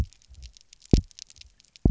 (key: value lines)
label: biophony, double pulse
recorder: SoundTrap 300